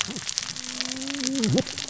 {"label": "biophony, cascading saw", "recorder": "SoundTrap 600 or HydroMoth"}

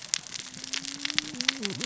{"label": "biophony, cascading saw", "recorder": "SoundTrap 600 or HydroMoth"}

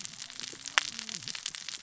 {"label": "biophony, cascading saw", "recorder": "SoundTrap 600 or HydroMoth"}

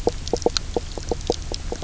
{"label": "biophony, knock croak", "recorder": "SoundTrap 300"}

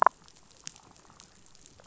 {"label": "biophony, damselfish", "recorder": "SoundTrap 500"}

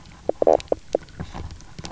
{"label": "biophony, knock croak", "recorder": "SoundTrap 300"}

